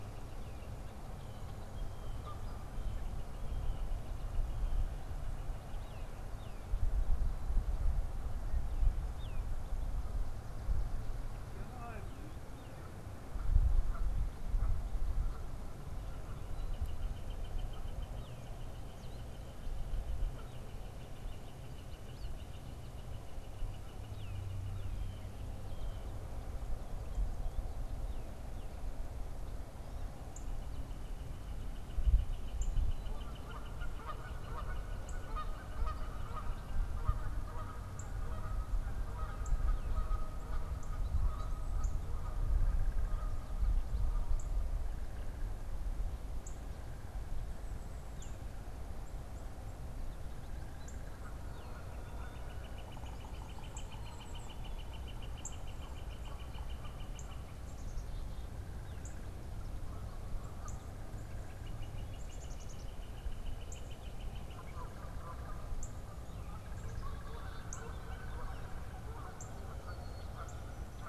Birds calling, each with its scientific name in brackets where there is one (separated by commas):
Tufted Titmouse (Baeolophus bicolor), Blue Jay (Cyanocitta cristata), Northern Cardinal (Cardinalis cardinalis), Black-capped Chickadee (Poecile atricapillus), Canada Goose (Branta canadensis), Northern Flicker (Colaptes auratus)